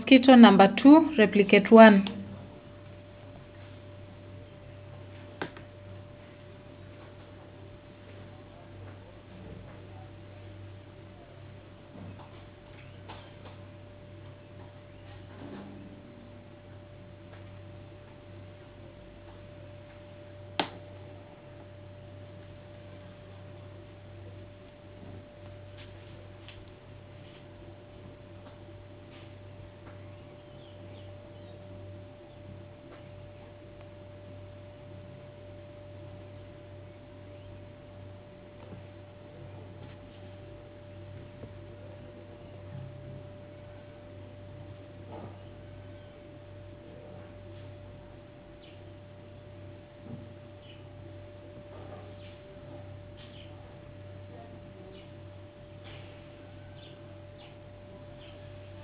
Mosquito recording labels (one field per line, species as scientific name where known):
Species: no mosquito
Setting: insect culture